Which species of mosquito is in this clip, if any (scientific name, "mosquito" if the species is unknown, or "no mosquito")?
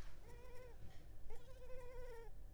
Culex pipiens complex